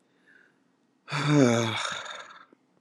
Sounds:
Sigh